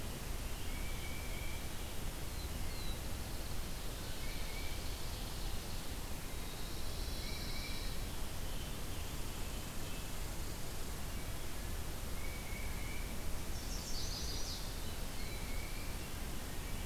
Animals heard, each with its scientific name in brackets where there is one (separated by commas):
Tufted Titmouse (Baeolophus bicolor), Black-throated Blue Warbler (Setophaga caerulescens), Ovenbird (Seiurus aurocapilla), Chestnut-sided Warbler (Setophaga pensylvanica), Pine Warbler (Setophaga pinus)